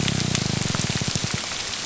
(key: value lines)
label: biophony, grouper groan
recorder: SoundTrap 300